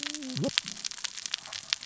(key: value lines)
label: biophony, cascading saw
recorder: SoundTrap 600 or HydroMoth